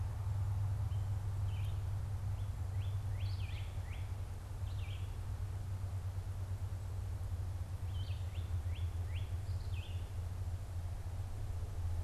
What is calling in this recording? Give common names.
Red-eyed Vireo, Northern Cardinal